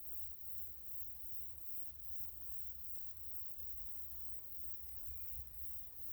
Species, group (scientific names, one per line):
Tettigettula pygmea
Cicadidae